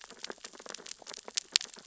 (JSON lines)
{"label": "biophony, sea urchins (Echinidae)", "recorder": "SoundTrap 600 or HydroMoth"}